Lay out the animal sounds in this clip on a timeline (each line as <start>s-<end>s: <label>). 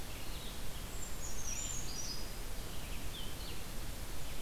0.2s-4.4s: Red-eyed Vireo (Vireo olivaceus)
0.6s-2.4s: Brown Creeper (Certhia americana)
3.0s-3.6s: Blue-headed Vireo (Vireo solitarius)